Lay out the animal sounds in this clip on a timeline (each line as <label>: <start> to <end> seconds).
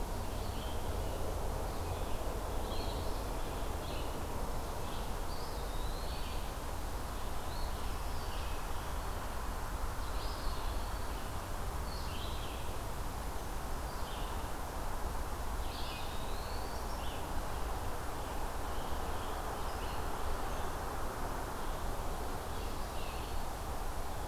Red-eyed Vireo (Vireo olivaceus): 0.0 to 10.9 seconds
Eastern Phoebe (Sayornis phoebe): 2.6 to 3.3 seconds
Eastern Wood-Pewee (Contopus virens): 5.2 to 6.5 seconds
Eastern Phoebe (Sayornis phoebe): 7.4 to 8.1 seconds
Black-throated Green Warbler (Setophaga virens): 7.9 to 9.6 seconds
Eastern Wood-Pewee (Contopus virens): 10.1 to 11.3 seconds
Red-eyed Vireo (Vireo olivaceus): 11.7 to 24.3 seconds
Eastern Wood-Pewee (Contopus virens): 15.6 to 16.8 seconds
Scarlet Tanager (Piranga olivacea): 18.2 to 20.1 seconds
Eastern Wood-Pewee (Contopus virens): 22.5 to 23.5 seconds